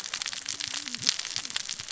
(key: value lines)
label: biophony, cascading saw
recorder: SoundTrap 600 or HydroMoth